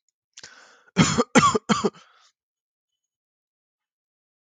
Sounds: Cough